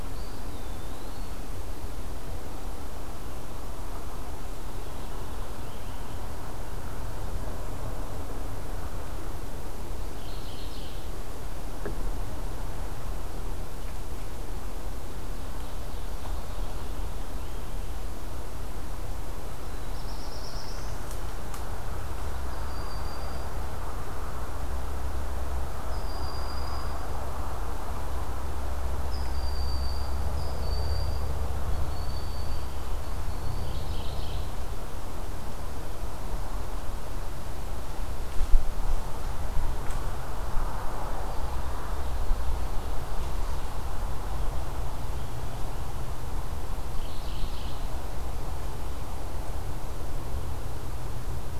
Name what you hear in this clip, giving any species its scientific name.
Contopus virens, Geothlypis philadelphia, Setophaga caerulescens, Buteo platypterus, Seiurus aurocapilla